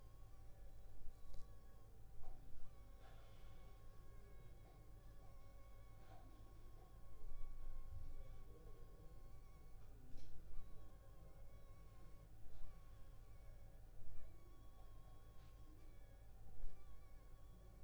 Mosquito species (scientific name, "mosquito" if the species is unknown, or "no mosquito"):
Anopheles funestus s.s.